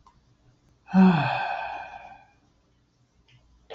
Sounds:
Sigh